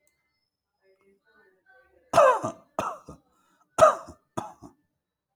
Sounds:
Cough